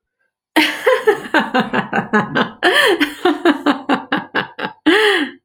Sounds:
Laughter